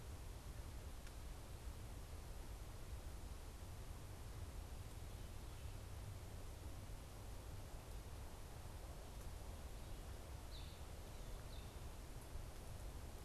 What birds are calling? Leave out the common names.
unidentified bird